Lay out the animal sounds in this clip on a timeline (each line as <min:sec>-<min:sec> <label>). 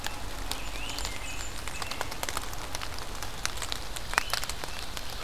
0:00.3-0:02.2 American Robin (Turdus migratorius)
0:00.5-0:01.8 Blackburnian Warbler (Setophaga fusca)
0:00.6-0:01.0 Great Crested Flycatcher (Myiarchus crinitus)
0:03.3-0:05.2 Ovenbird (Seiurus aurocapilla)
0:03.9-0:04.5 Great Crested Flycatcher (Myiarchus crinitus)